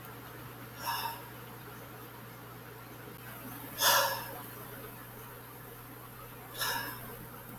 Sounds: Sigh